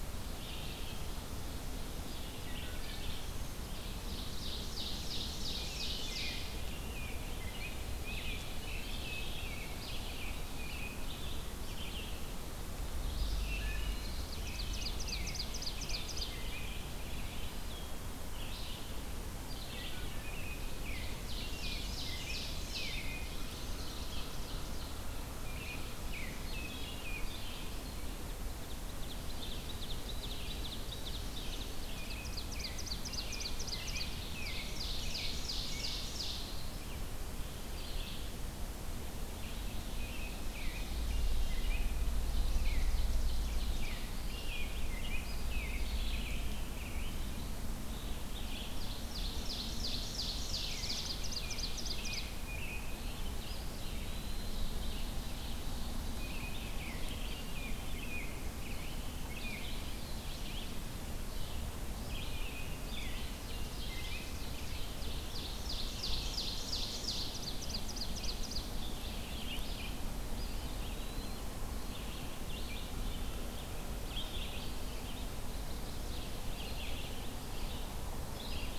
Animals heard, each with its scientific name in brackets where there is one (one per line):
Wood Thrush (Hylocichla mustelina)
Eastern Wood-Pewee (Contopus virens)
Red-eyed Vireo (Vireo olivaceus)
American Robin (Turdus migratorius)
Black-throated Blue Warbler (Setophaga caerulescens)
Ovenbird (Seiurus aurocapilla)